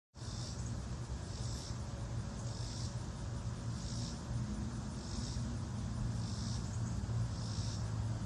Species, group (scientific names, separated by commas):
Neotibicen robinsonianus, Cicadidae